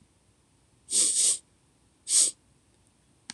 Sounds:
Sniff